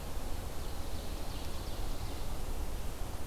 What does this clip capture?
Ovenbird